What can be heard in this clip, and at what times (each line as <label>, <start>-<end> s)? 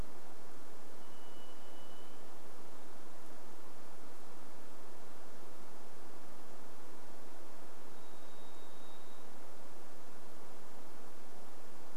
Varied Thrush song, 0-4 s
Varied Thrush song, 8-10 s